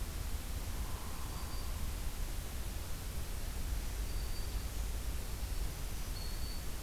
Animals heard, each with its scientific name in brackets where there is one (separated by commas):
Black-throated Green Warbler (Setophaga virens), Hairy Woodpecker (Dryobates villosus)